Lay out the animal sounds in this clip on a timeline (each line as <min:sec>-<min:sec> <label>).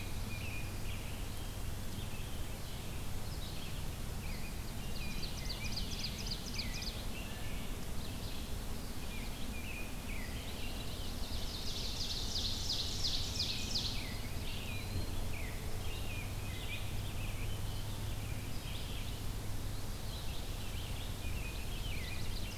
0:00.0-0:00.8 American Robin (Turdus migratorius)
0:00.0-0:22.6 Red-eyed Vireo (Vireo olivaceus)
0:04.1-0:07.7 American Robin (Turdus migratorius)
0:04.5-0:07.1 Ovenbird (Seiurus aurocapilla)
0:08.9-0:11.2 American Robin (Turdus migratorius)
0:10.5-0:14.0 Ovenbird (Seiurus aurocapilla)
0:13.2-0:19.1 American Robin (Turdus migratorius)
0:14.0-0:15.4 Eastern Wood-Pewee (Contopus virens)
0:19.6-0:20.4 Eastern Wood-Pewee (Contopus virens)
0:20.1-0:22.6 American Robin (Turdus migratorius)
0:21.6-0:22.6 Ovenbird (Seiurus aurocapilla)